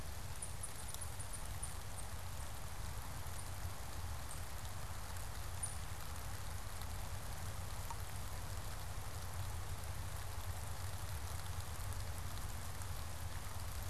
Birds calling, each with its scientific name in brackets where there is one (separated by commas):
unidentified bird